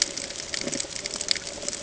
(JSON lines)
{"label": "ambient", "recorder": "HydroMoth"}